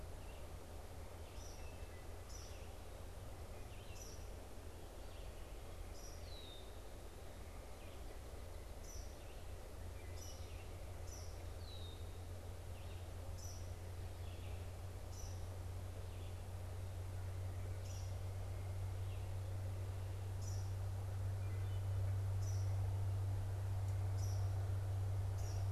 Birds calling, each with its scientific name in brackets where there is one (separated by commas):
Eastern Kingbird (Tyrannus tyrannus), Red-winged Blackbird (Agelaius phoeniceus), Wood Thrush (Hylocichla mustelina), Red-eyed Vireo (Vireo olivaceus)